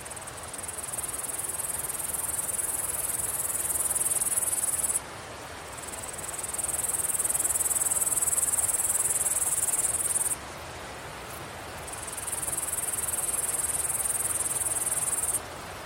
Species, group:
Tettigonia cantans, Orthoptera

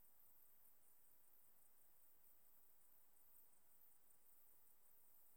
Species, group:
Tettigonia hispanica, Orthoptera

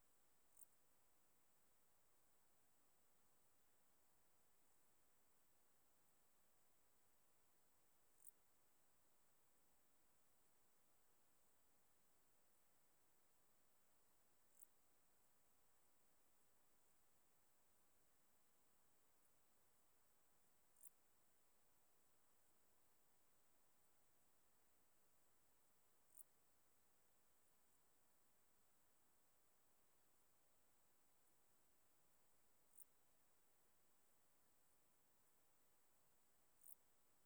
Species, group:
Lluciapomaresius stalii, Orthoptera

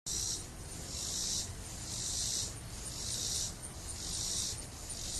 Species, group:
Neotibicen robinsonianus, Cicadidae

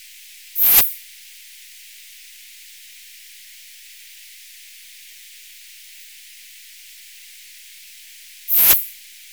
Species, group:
Poecilimon affinis, Orthoptera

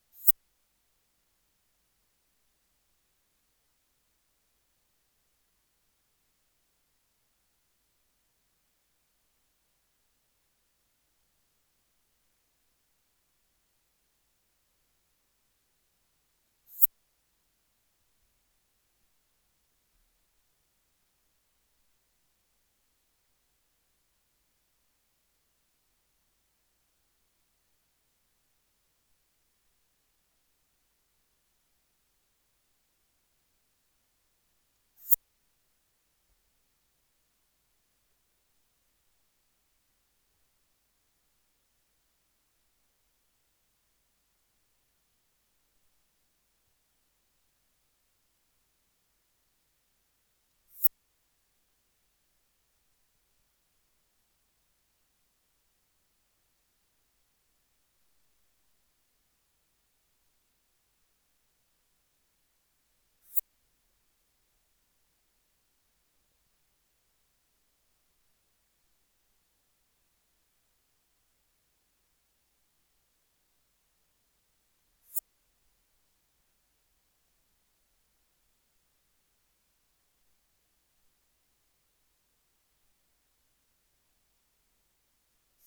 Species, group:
Poecilimon affinis, Orthoptera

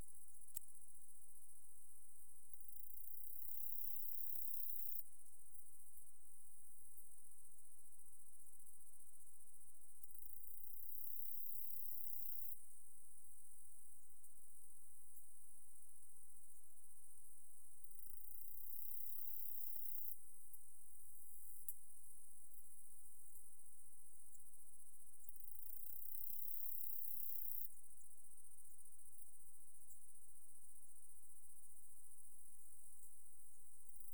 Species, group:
Saga hellenica, Orthoptera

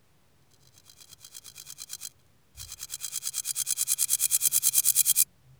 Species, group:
Chorthippus binotatus, Orthoptera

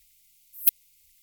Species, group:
Poecilimon affinis, Orthoptera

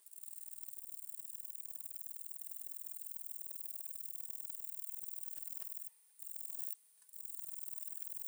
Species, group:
Broughtonia domogledi, Orthoptera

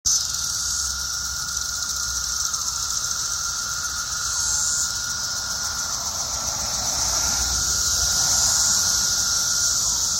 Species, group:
Magicicada septendecim, Cicadidae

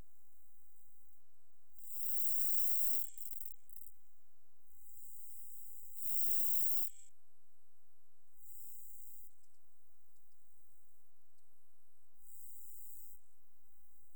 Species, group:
Stenobothrus nigromaculatus, Orthoptera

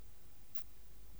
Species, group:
Poecilimon zimmeri, Orthoptera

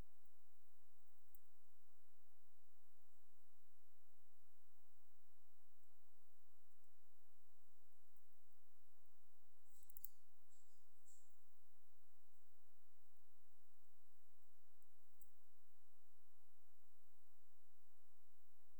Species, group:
Parasteropleurus martorellii, Orthoptera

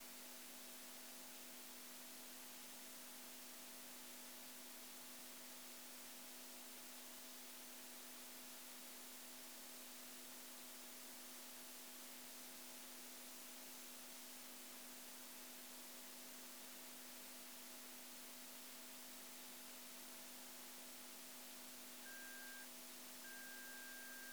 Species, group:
Chorthippus mollis, Orthoptera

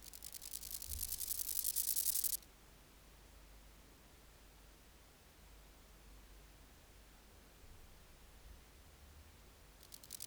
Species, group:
Omocestus raymondi, Orthoptera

